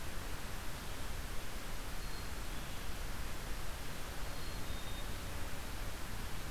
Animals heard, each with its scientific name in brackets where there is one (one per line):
Black-capped Chickadee (Poecile atricapillus)